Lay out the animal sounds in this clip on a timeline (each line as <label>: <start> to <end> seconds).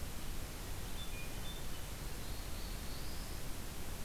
Hermit Thrush (Catharus guttatus): 0.7 to 2.0 seconds
Black-throated Blue Warbler (Setophaga caerulescens): 2.1 to 3.5 seconds